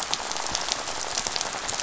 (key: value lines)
label: biophony, rattle
recorder: SoundTrap 500